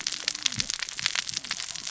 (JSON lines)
{"label": "biophony, cascading saw", "recorder": "SoundTrap 600 or HydroMoth"}